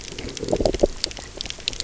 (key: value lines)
label: biophony, low growl
recorder: SoundTrap 300